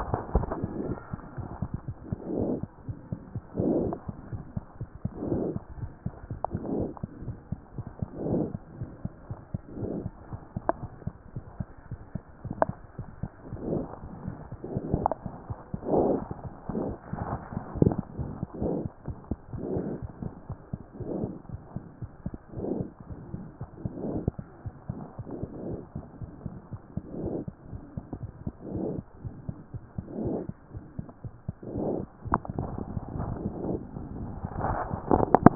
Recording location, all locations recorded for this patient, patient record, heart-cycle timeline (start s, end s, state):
mitral valve (MV)
aortic valve (AV)+aortic valve (AV)+mitral valve (MV)+mitral valve (MV)
#Age: Infant
#Sex: Female
#Height: 66.0 cm
#Weight: 8.2 kg
#Pregnancy status: False
#Murmur: Absent
#Murmur locations: nan
#Most audible location: nan
#Systolic murmur timing: nan
#Systolic murmur shape: nan
#Systolic murmur grading: nan
#Systolic murmur pitch: nan
#Systolic murmur quality: nan
#Diastolic murmur timing: nan
#Diastolic murmur shape: nan
#Diastolic murmur grading: nan
#Diastolic murmur pitch: nan
#Diastolic murmur quality: nan
#Outcome: Abnormal
#Campaign: 2014 screening campaign
0.00	4.25	unannotated
4.25	4.32	diastole
4.32	4.42	S1
4.42	4.56	systole
4.56	4.64	S2
4.64	4.82	diastole
4.82	4.90	S1
4.90	5.04	systole
5.04	5.12	S2
5.12	5.30	diastole
5.30	5.37	S1
5.37	5.54	systole
5.54	5.62	S2
5.62	5.80	diastole
5.80	5.90	S1
5.90	6.04	systole
6.04	6.14	S2
6.14	6.32	diastole
6.32	6.40	S1
6.40	6.52	systole
6.52	6.60	S2
6.60	6.74	diastole
6.74	6.88	S1
6.88	7.02	systole
7.02	7.08	S2
7.08	7.24	diastole
7.24	7.36	S1
7.36	7.50	systole
7.50	7.60	S2
7.60	7.76	diastole
7.76	7.86	S1
7.86	8.00	systole
8.00	8.06	S2
8.06	8.24	diastole
8.24	35.55	unannotated